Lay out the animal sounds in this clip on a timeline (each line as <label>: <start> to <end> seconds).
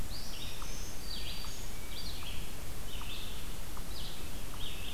Red-eyed Vireo (Vireo olivaceus): 0.0 to 4.9 seconds
unknown mammal: 0.0 to 4.9 seconds
Black-throated Green Warbler (Setophaga virens): 0.1 to 1.7 seconds